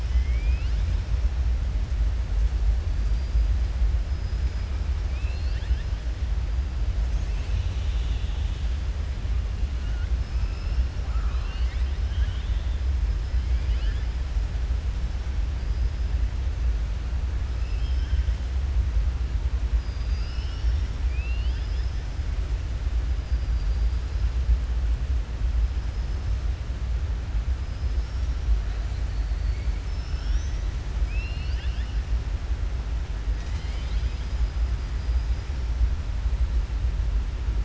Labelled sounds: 0.0	0.9	killer whale, southern resident, 2.0 to 5.0 kHz
5.0	5.9	killer whale, southern resident, 1.5 to 5.2 kHz
10.4	10.8	killer whale, southern resident, 5.0 to 5.6 kHz
11.1	12.0	killer whale, southern resident, 1.0 to 5.1 kHz
21.0	22.0	killer whale, southern resident, 2.0 to 6.0 kHz
23.2	23.8	killer whale, southern resident, 4.7 to 5.7 kHz
27.6	28.4	killer whale, southern resident, 4.9 to 6.4 kHz
29.1	29.7	killer whale, southern resident, 4.2 to 4.6 kHz
31.0	31.9	killer whale, southern resident, 1.6 to 5.5 kHz

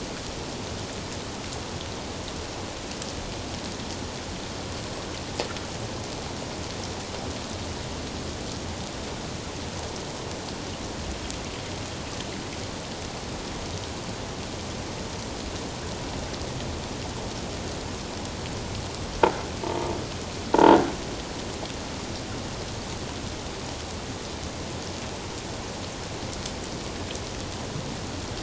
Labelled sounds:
20.5	20.8	croaking sound likely from a nearby submerged object, 0.81 to 1.0 kHz

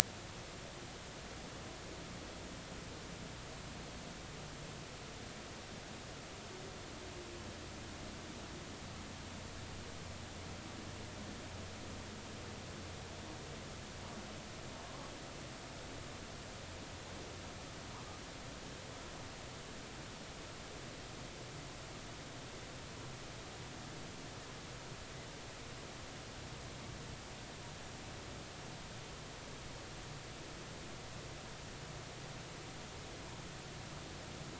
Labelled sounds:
14.8	15.1	humpback whale, 0.99 to 1.2 kHz

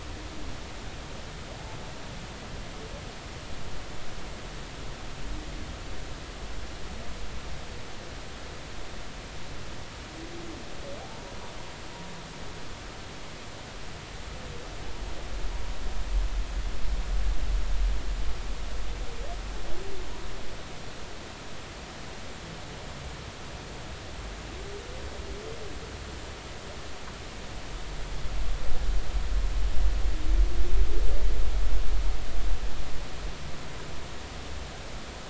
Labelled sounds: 11.0	11.3	humpback whale, 0.80 to 0.96 kHz

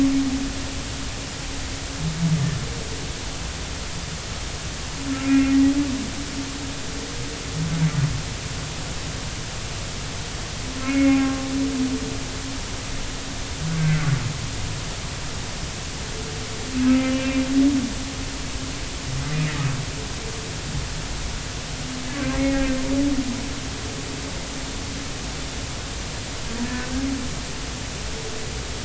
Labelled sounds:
10.8	11.4	humpback whale, 0.80 to 2.3 kHz
13.8	14.0	humpback whale, 1.3 to 1.6 kHz
16.8	17.4	humpback whale, 1.2 to 2.7 kHz
22.3	22.8	humpback whale, 1.8 to 2.0 kHz
26.6	26.9	humpback whale, 1.7 to 1.8 kHz

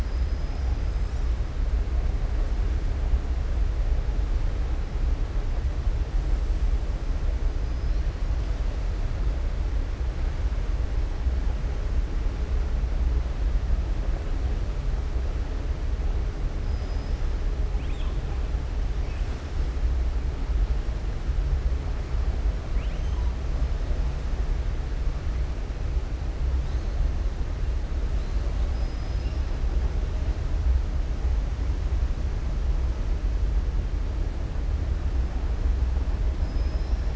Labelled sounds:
0.0	0.8	killer whale, southern resident, 4.3 to 5.9 kHz
16.6	17.2	killer whale, southern resident, 4.6 to 5.9 kHz
28.6	29.5	killer whale, southern resident, 4.3 to 5.6 kHz
36.4	37.1	killer whale, southern resident, 4.1 to 5.7 kHz

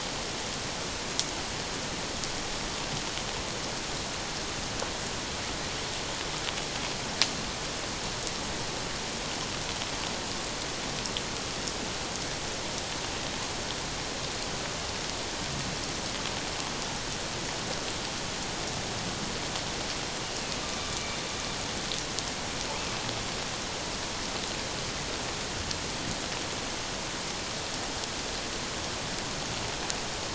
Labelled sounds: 20.9	21.2	killer whale, northern resident, A clan, AA subclan, call N04, 2.3 to 2.4 kHz

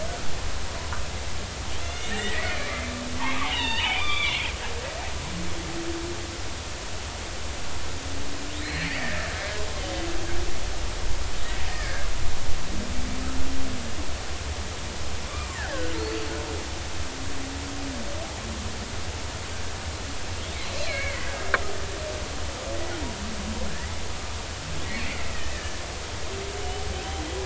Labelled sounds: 1.8	2.8	killer whale, Bigg's (transient), 1.7 to 6.5 kHz
3.4	4.5	killer whale, Bigg's (transient), 0.80 to 4.8 kHz
8.6	9.3	killer whale, Bigg's (transient), 1.6 to 4.5 kHz
11.7	12.1	killer whale, Bigg's (transient), 1.4 to 1.9 kHz
15.5	16.3	killer whale, Bigg's (transient), 1.4 to 4.6 kHz
20.9	21.3	killer whale, Bigg's (transient), 1.5 to 2.5 kHz
24.8	25.2	killer whale, Bigg's (transient), 1.8 to 2.4 kHz
25.5	25.8	killer whale, Bigg's (transient), 1.7 to 1.9 kHz

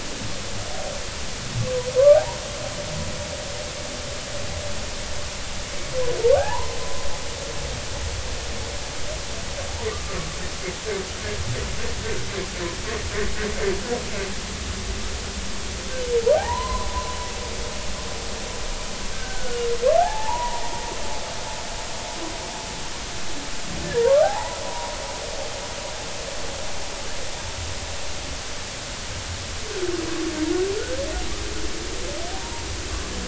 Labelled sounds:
2.0	2.4	humpback whale, 0.80 to 1.2 kHz
6.4	7.0	humpback whale, 0.80 to 1.1 kHz
16.3	17.2	humpback whale, 0.80 to 4.2 kHz
19.1	20.6	humpback whale, 0.80 to 1.6 kHz
23.8	25.0	humpback whale, 0.80 to 1.9 kHz
32.4	32.7	humpback whale, 0.86 to 0.99 kHz

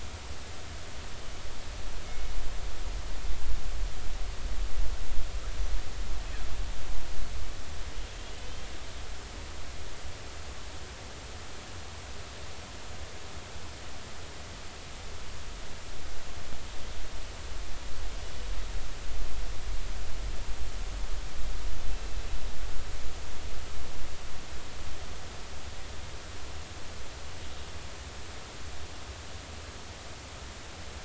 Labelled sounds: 2.1	2.3	killer whale, northern resident, G clan, call N24ii, 2.1 to 2.2 kHz
8.4	8.7	killer whale, 3.0 to 3.3 kHz

